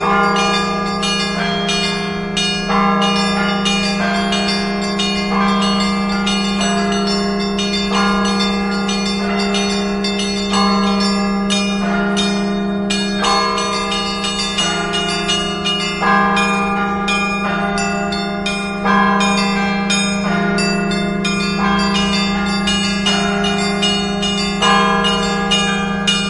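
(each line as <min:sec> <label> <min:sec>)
0:00.0 A ding sounds. 0:26.3
0:00.0 Bells ringing. 0:26.3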